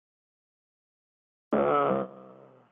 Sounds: Sigh